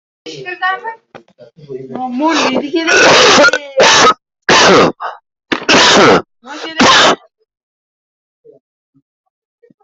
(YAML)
expert_labels:
- quality: ok
  cough_type: wet
  dyspnea: false
  wheezing: false
  stridor: false
  choking: false
  congestion: false
  nothing: true
  diagnosis: lower respiratory tract infection
  severity: severe